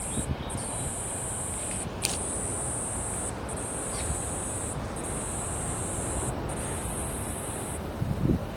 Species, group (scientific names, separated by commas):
Haemopsalta aktites, Cicadidae